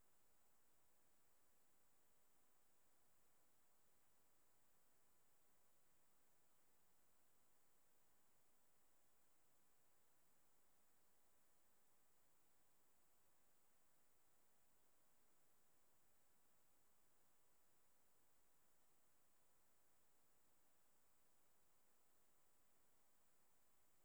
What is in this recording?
Lluciapomaresius stalii, an orthopteran